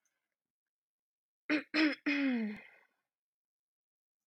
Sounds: Throat clearing